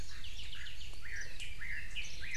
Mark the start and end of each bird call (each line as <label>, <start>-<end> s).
Chinese Hwamei (Garrulax canorus), 0.0-2.4 s
Apapane (Himatione sanguinea), 0.2-1.0 s
Warbling White-eye (Zosterops japonicus), 1.1-1.4 s